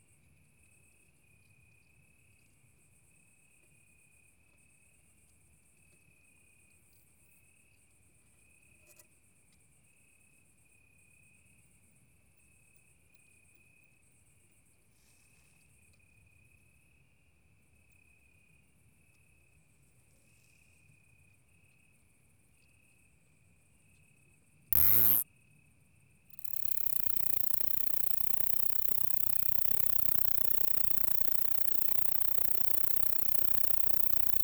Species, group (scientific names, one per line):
Isophya plevnensis
Orthoptera